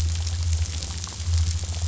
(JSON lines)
{"label": "anthrophony, boat engine", "recorder": "SoundTrap 500"}